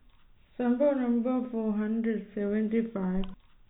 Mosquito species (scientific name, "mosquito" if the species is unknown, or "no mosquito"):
no mosquito